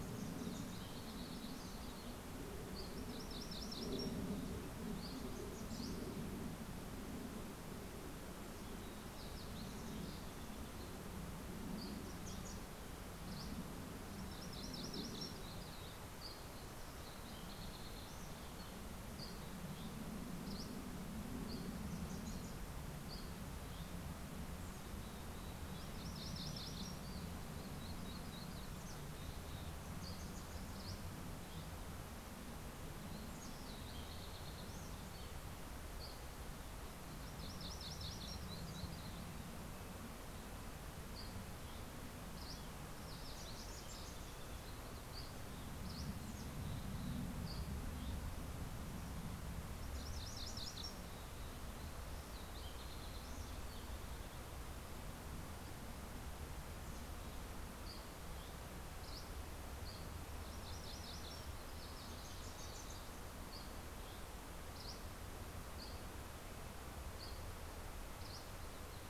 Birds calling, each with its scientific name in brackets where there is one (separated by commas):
Fox Sparrow (Passerella iliaca), MacGillivray's Warbler (Geothlypis tolmiei), Yellow-rumped Warbler (Setophaga coronata), Wilson's Warbler (Cardellina pusilla), Red-breasted Nuthatch (Sitta canadensis), Dusky Flycatcher (Empidonax oberholseri), Mountain Chickadee (Poecile gambeli)